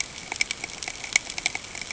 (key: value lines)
label: ambient
recorder: HydroMoth